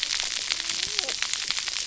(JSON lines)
{"label": "biophony, cascading saw", "recorder": "SoundTrap 300"}